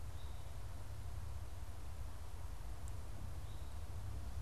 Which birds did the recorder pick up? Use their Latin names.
Pipilo erythrophthalmus